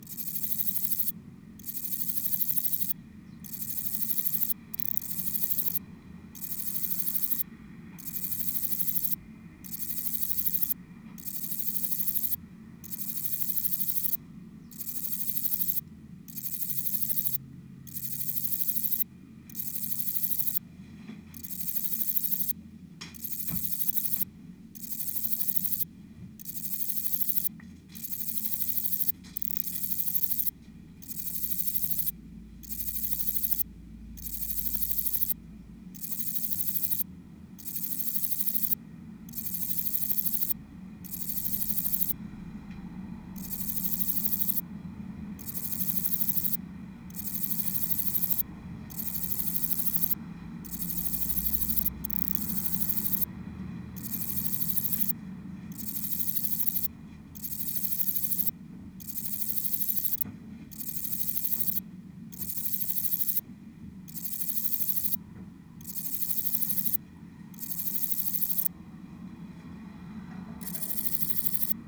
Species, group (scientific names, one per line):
Parnassiana parnassica
Orthoptera